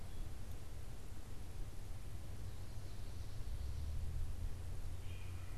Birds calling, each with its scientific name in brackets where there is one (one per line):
Wood Thrush (Hylocichla mustelina)
Great Crested Flycatcher (Myiarchus crinitus)